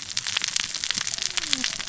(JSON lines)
{"label": "biophony, cascading saw", "recorder": "SoundTrap 600 or HydroMoth"}